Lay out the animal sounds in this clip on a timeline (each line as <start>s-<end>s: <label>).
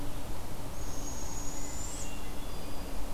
0.6s-2.1s: Barred Owl (Strix varia)
1.5s-3.1s: Hermit Thrush (Catharus guttatus)